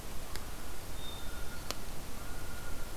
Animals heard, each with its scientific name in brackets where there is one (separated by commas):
Hermit Thrush (Catharus guttatus), Blue Jay (Cyanocitta cristata)